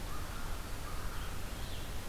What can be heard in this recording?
American Crow, Red-eyed Vireo